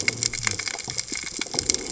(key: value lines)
label: biophony
recorder: HydroMoth